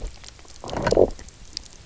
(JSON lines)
{"label": "biophony, low growl", "recorder": "SoundTrap 300"}